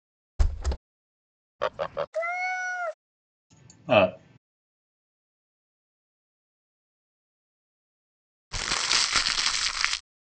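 First, at 0.4 seconds, a window closes. After that, at 1.6 seconds, fowl can be heard. Next, at 2.1 seconds, a cat meows. Later, at 3.9 seconds, someone says "Up." Finally, at 8.5 seconds, crumpling is audible.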